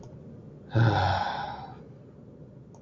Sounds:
Sigh